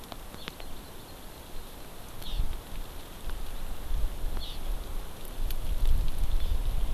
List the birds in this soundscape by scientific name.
Chlorodrepanis virens